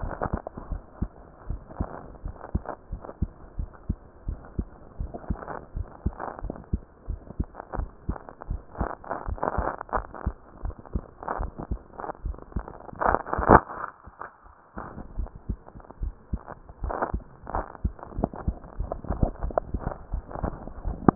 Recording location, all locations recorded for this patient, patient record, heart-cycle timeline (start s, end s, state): mitral valve (MV)
aortic valve (AV)+pulmonary valve (PV)+tricuspid valve (TV)+mitral valve (MV)
#Age: Adolescent
#Sex: Female
#Height: 145.0 cm
#Weight: 30.8 kg
#Pregnancy status: False
#Murmur: Absent
#Murmur locations: nan
#Most audible location: nan
#Systolic murmur timing: nan
#Systolic murmur shape: nan
#Systolic murmur grading: nan
#Systolic murmur pitch: nan
#Systolic murmur quality: nan
#Diastolic murmur timing: nan
#Diastolic murmur shape: nan
#Diastolic murmur grading: nan
#Diastolic murmur pitch: nan
#Diastolic murmur quality: nan
#Outcome: Normal
#Campaign: 2015 screening campaign
0.00	0.68	unannotated
0.68	0.82	S1
0.82	0.98	systole
0.98	1.12	S2
1.12	1.46	diastole
1.46	1.60	S1
1.60	1.76	systole
1.76	1.90	S2
1.90	2.22	diastole
2.22	2.36	S1
2.36	2.52	systole
2.52	2.66	S2
2.66	2.90	diastole
2.90	3.00	S1
3.00	3.18	systole
3.18	3.30	S2
3.30	3.56	diastole
3.56	3.70	S1
3.70	3.86	systole
3.86	4.00	S2
4.00	4.26	diastole
4.26	4.40	S1
4.40	4.56	systole
4.56	4.70	S2
4.70	4.98	diastole
4.98	5.12	S1
5.12	5.28	systole
5.28	5.38	S2
5.38	5.74	diastole
5.74	5.88	S1
5.88	6.02	systole
6.02	6.14	S2
6.14	6.42	diastole
6.42	6.56	S1
6.56	6.70	systole
6.70	6.82	S2
6.82	7.08	diastole
7.08	7.20	S1
7.20	7.36	systole
7.36	7.48	S2
7.48	7.76	diastole
7.76	7.90	S1
7.90	8.06	systole
8.06	8.16	S2
8.16	8.48	diastole
8.48	8.62	S1
8.62	8.78	systole
8.78	8.92	S2
8.92	9.26	diastole
9.26	9.40	S1
9.40	9.56	systole
9.56	9.70	S2
9.70	9.94	diastole
9.94	10.06	S1
10.06	10.22	systole
10.22	10.34	S2
10.34	10.62	diastole
10.62	10.76	S1
10.76	10.94	systole
10.94	11.04	S2
11.04	11.38	diastole
11.38	11.52	S1
11.52	11.70	systole
11.70	11.84	S2
11.84	12.20	diastole
12.20	12.38	S1
12.38	12.52	systole
12.52	12.64	S2
12.64	12.88	diastole
12.88	21.15	unannotated